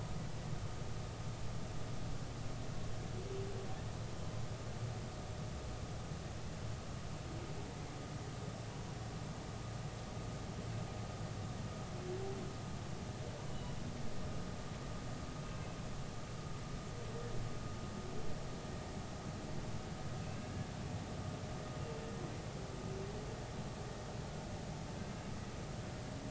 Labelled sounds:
15.4	15.8	humpback whale, 2.5 to 2.7 kHz
20.2	20.5	humpback whale, 2.5 to 2.8 kHz

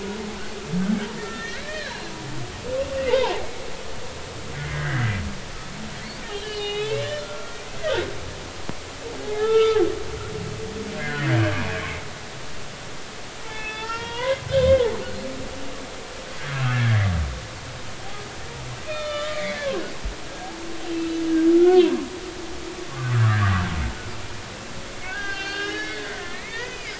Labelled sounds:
1.2	2.1	humpback whale, 1.4 to 4.2 kHz
3.0	3.6	humpback whale, 0.80 to 2.2 kHz
4.6	5.2	humpback whale, 1.4 to 2.2 kHz
6.3	8.0	humpback whale, 1.3 to 4.3 kHz
9.2	9.8	humpback whale, 0.80 to 3.6 kHz
11.1	11.6	humpback whale, 1.5 to 2.0 kHz
13.4	14.9	humpback whale, 0.83 to 3.6 kHz
16.6	17.1	humpback whale, 1.6 to 2.8 kHz
18.9	19.6	humpback whale, 1.1 to 4.4 kHz
20.3	21.1	humpback whale, 1.6 to 2.8 kHz
22.9	23.4	humpback whale, 1.1 to 1.5 kHz
25.1	26.9	humpback whale, 0.80 to 5.4 kHz

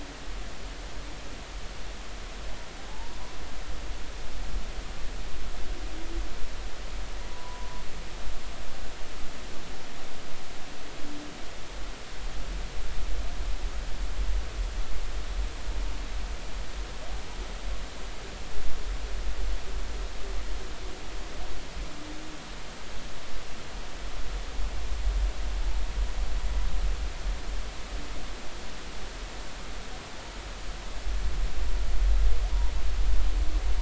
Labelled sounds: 2.9	3.2	humpback whale, 0.80 to 1.0 kHz
7.3	7.8	humpback whale, 0.93 to 1.1 kHz

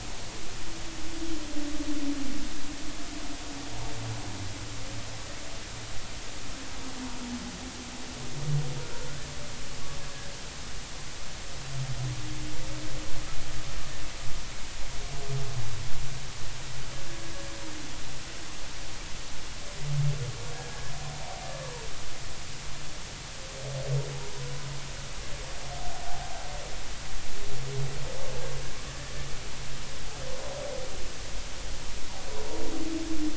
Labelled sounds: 28.9	29.1	humpback whale, 1.7 to 1.9 kHz

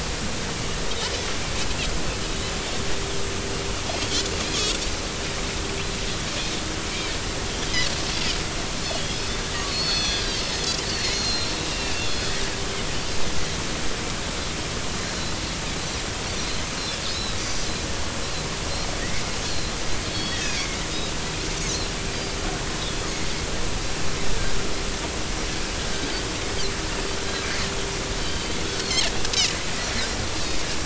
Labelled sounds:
4.5	4.8	Pacific white-sided dolphin, 3.1 to 3.6 kHz
6.9	7.2	Pacific white-sided dolphin, 2.2 to 2.5 kHz
8.8	12.0	Pacific white-sided dolphin, 2.5 to 6.2 kHz
15.8	16.0	Pacific white-sided dolphin, 3.8 to 4.1 kHz
17.1	17.6	Pacific white-sided dolphin, 3.7 to 6.1 kHz
19.5	20.8	Pacific white-sided dolphin, 1.6 to 4.5 kHz
28.2	29.1	Pacific white-sided dolphin, 3.0 to 4.8 kHz

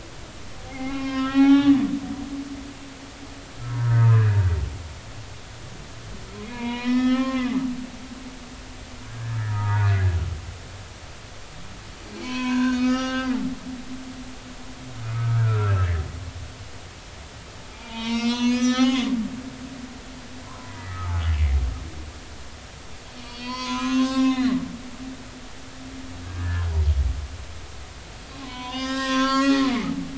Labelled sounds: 0.7	1.7	humpback whale, 0.80 to 5.2 kHz
3.7	4.4	humpback whale, 0.86 to 1.8 kHz
6.4	7.6	humpback whale, 0.80 to 5.4 kHz
9.1	10.0	humpback whale, 0.83 to 1.8 kHz
12.1	13.3	humpback whale, 0.80 to 5.2 kHz
15.0	16.0	humpback whale, 1.2 to 2.7 kHz
17.7	19.1	humpback whale, 0.80 to 6.5 kHz
20.5	21.1	humpback whale, 0.90 to 2.0 kHz
23.2	24.6	humpback whale, 0.80 to 6.4 kHz
26.3	26.7	humpback whale, 1.3 to 1.8 kHz
28.4	29.9	humpback whale, 0.80 to 6.4 kHz

